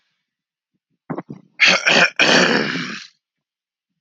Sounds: Throat clearing